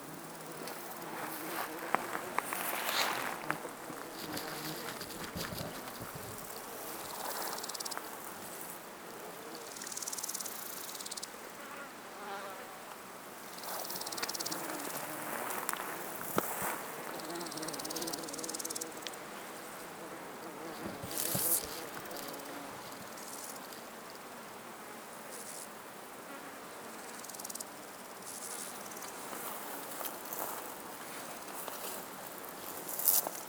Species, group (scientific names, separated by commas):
Chorthippus jacobsi, Orthoptera